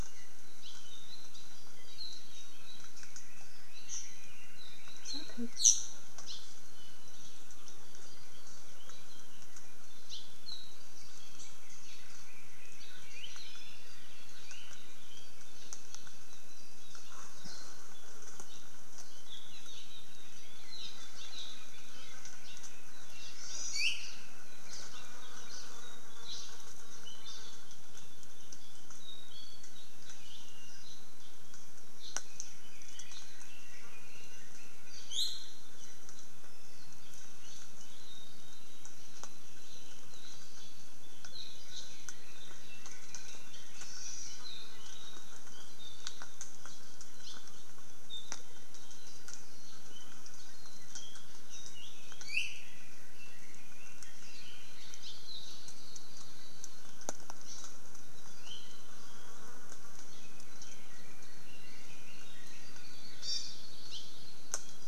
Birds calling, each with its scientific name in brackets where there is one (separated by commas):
Hawaii Akepa (Loxops coccineus), Hawaii Elepaio (Chasiempis sandwichensis), Hawaii Creeper (Loxops mana), Apapane (Himatione sanguinea), Iiwi (Drepanis coccinea), Red-billed Leiothrix (Leiothrix lutea), Hawaii Amakihi (Chlorodrepanis virens)